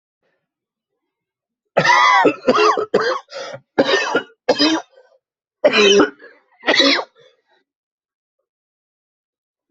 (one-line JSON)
{"expert_labels": [{"quality": "good", "cough_type": "dry", "dyspnea": true, "wheezing": true, "stridor": false, "choking": false, "congestion": false, "nothing": false, "diagnosis": "obstructive lung disease", "severity": "mild"}], "age": 36, "gender": "male", "respiratory_condition": false, "fever_muscle_pain": true, "status": "symptomatic"}